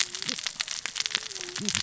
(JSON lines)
{"label": "biophony, cascading saw", "recorder": "SoundTrap 600 or HydroMoth"}